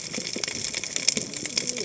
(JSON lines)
{"label": "biophony, cascading saw", "recorder": "HydroMoth"}